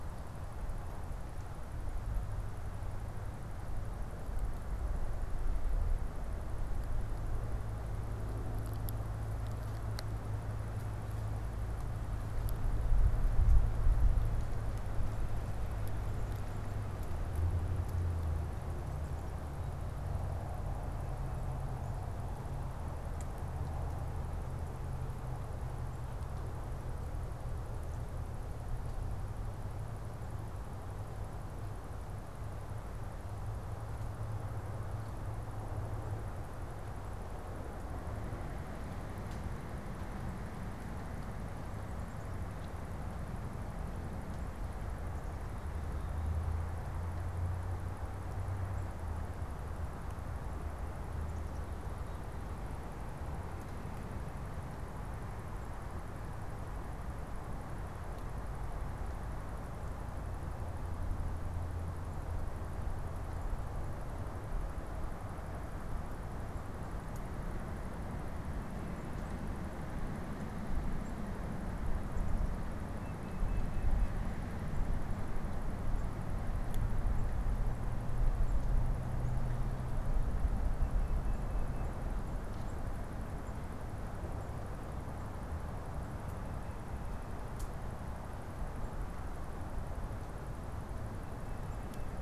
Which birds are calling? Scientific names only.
unidentified bird, Baeolophus bicolor